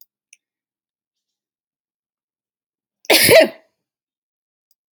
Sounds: Sneeze